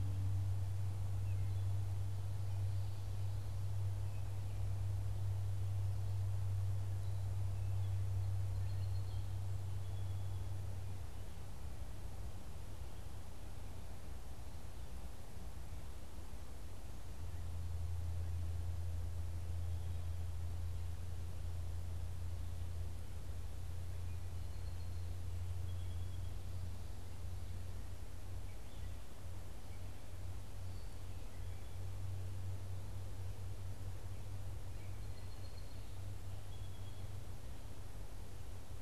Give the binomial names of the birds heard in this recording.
Melospiza melodia, unidentified bird